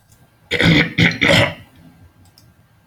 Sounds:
Throat clearing